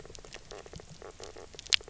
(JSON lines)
{"label": "biophony, knock croak", "recorder": "SoundTrap 300"}